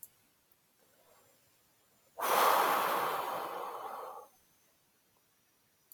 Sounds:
Sigh